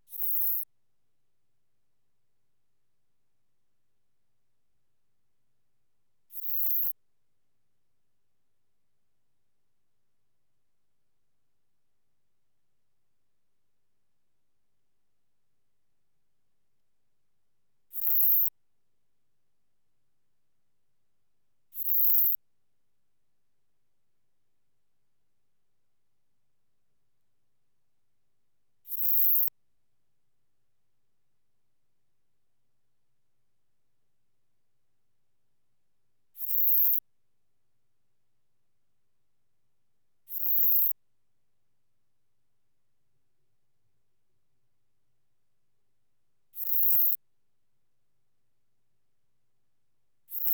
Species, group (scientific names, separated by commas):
Eupholidoptera forcipata, Orthoptera